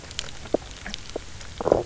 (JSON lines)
{"label": "biophony, low growl", "recorder": "SoundTrap 300"}